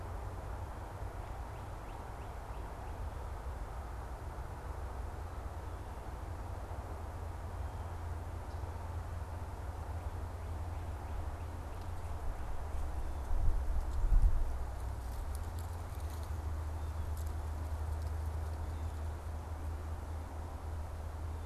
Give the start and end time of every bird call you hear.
0.8s-3.1s: Northern Cardinal (Cardinalis cardinalis)

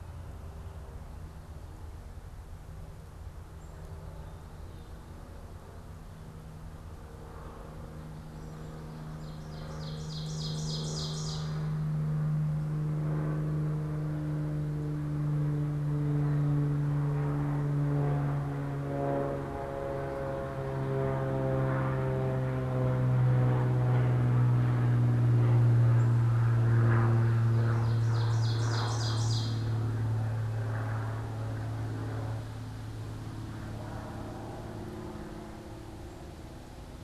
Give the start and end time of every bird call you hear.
8.5s-11.9s: Ovenbird (Seiurus aurocapilla)
25.9s-26.1s: Black-capped Chickadee (Poecile atricapillus)
26.9s-30.1s: Ovenbird (Seiurus aurocapilla)

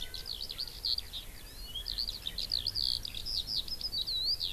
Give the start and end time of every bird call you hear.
0.0s-4.5s: Eurasian Skylark (Alauda arvensis)

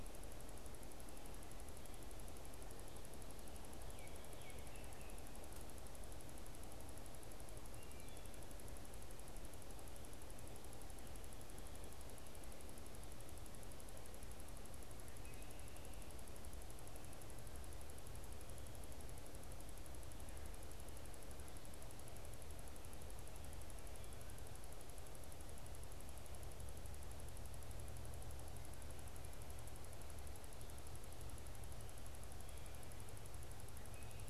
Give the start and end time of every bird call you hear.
3.9s-5.2s: Baltimore Oriole (Icterus galbula)
15.1s-15.5s: Wood Thrush (Hylocichla mustelina)

